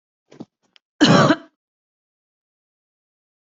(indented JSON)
{
  "expert_labels": [
    {
      "quality": "good",
      "cough_type": "unknown",
      "dyspnea": false,
      "wheezing": false,
      "stridor": false,
      "choking": false,
      "congestion": false,
      "nothing": true,
      "diagnosis": "healthy cough",
      "severity": "pseudocough/healthy cough"
    }
  ],
  "age": 18,
  "gender": "male",
  "respiratory_condition": true,
  "fever_muscle_pain": false,
  "status": "symptomatic"
}